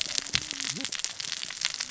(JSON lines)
{"label": "biophony, cascading saw", "recorder": "SoundTrap 600 or HydroMoth"}